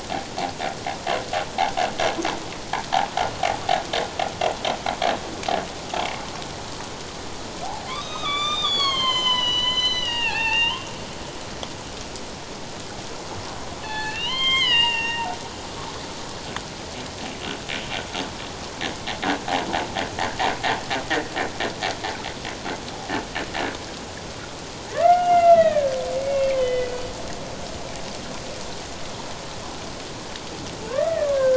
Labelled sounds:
7.9	10.8	humpback whale, 0.78 to 7.5 kHz
13.8	15.3	humpback whale, 0.81 to 7.6 kHz
24.9	27.0	humpback whale, 1.0 to 3.4 kHz
30.9	31.3	humpback whale, 1.4 to 2.0 kHz

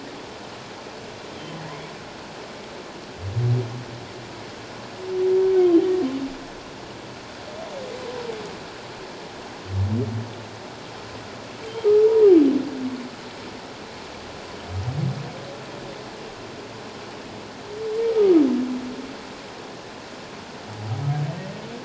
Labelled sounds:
1.7	1.9	humpback whale, 1.8 to 2.3 kHz
18.1	18.4	humpback whale, 1.2 to 1.3 kHz

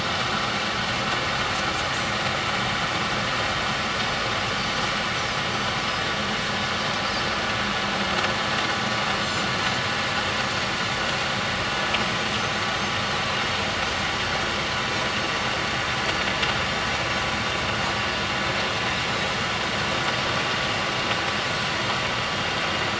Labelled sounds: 5.5	5.8	Pacific white-sided dolphin, 6.0 to 6.1 kHz
9.2	9.5	Pacific white-sided dolphin, 7.0 to 7.4 kHz

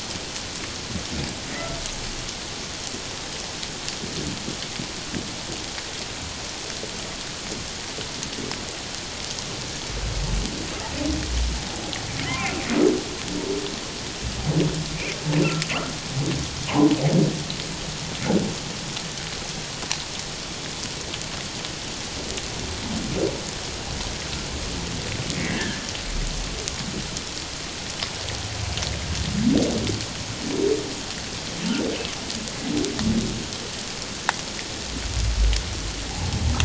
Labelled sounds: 16.7	16.9	humpback whale, 0.78 to 1.1 kHz
25.4	25.9	humpback whale, 1.5 to 2.3 kHz

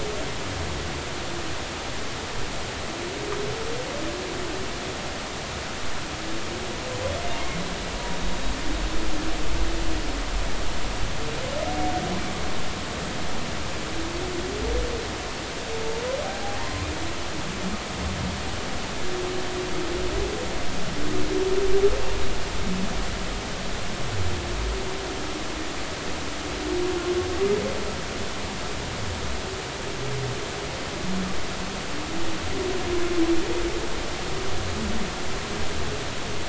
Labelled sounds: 16.2	16.9	humpback whale, 0.80 to 1.3 kHz

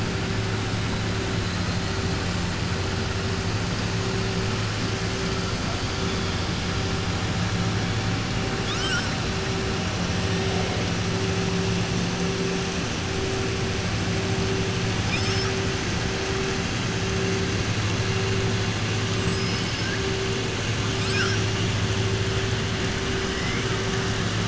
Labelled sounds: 19.2	19.9	killer whale, southern resident, 4.3 to 5.4 kHz
23.3	23.7	killer whale, southern resident, 1.3 to 2.9 kHz

